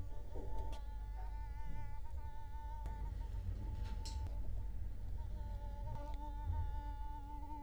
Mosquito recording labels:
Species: Culex quinquefasciatus; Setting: cup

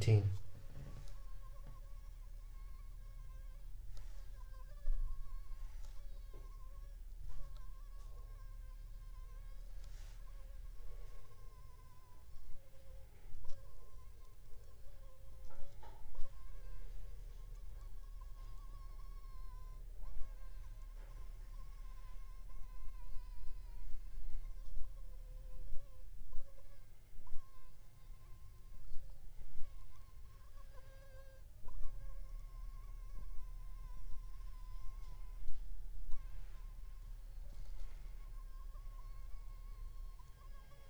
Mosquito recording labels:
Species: Anopheles funestus s.s.; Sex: female; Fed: unfed; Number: one; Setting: cup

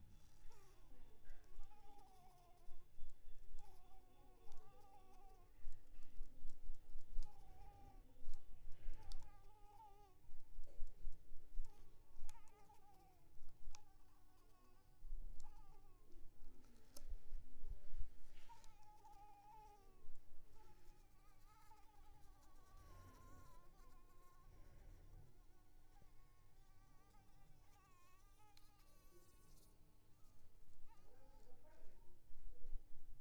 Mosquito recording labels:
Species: Anopheles arabiensis; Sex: female; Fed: unfed; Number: one; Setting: cup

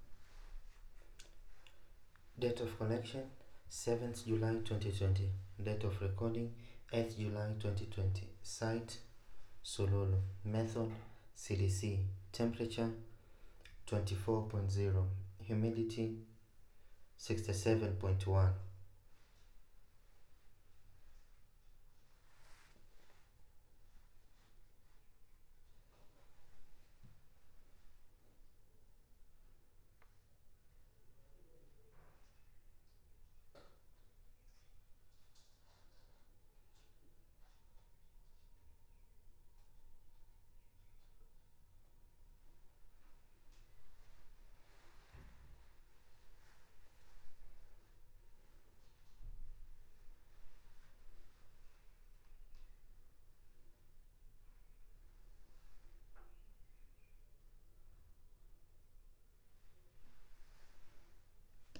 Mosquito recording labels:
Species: no mosquito; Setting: cup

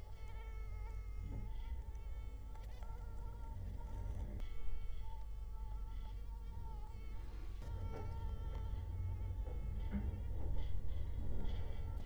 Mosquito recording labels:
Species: Culex quinquefasciatus; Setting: cup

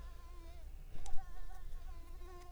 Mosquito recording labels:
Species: Mansonia uniformis; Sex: female; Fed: unfed; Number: one; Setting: cup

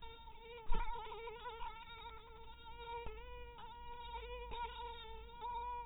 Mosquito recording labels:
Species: mosquito; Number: one; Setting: cup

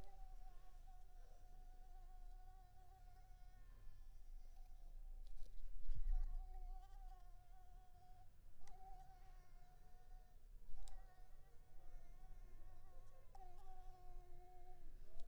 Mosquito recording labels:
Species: Anopheles coustani; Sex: female; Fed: unfed; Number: one; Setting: cup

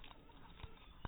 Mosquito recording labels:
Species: mosquito; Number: one; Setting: cup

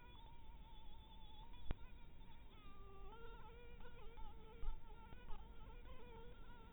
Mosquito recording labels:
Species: Anopheles dirus; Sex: female; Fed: blood-fed; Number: one; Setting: cup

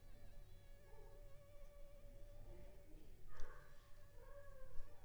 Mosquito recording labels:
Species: Anopheles funestus s.s.; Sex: female; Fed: unfed; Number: one; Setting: cup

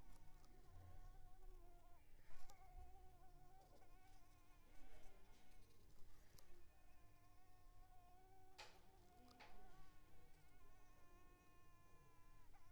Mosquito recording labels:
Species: Mansonia africanus; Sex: female; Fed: unfed; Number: one; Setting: cup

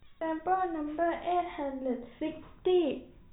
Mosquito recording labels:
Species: no mosquito; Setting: cup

